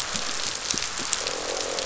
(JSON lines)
{"label": "biophony, croak", "recorder": "SoundTrap 500"}